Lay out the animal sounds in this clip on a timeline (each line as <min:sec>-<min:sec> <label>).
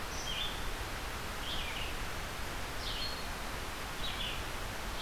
0:00.0-0:05.0 Red-eyed Vireo (Vireo olivaceus)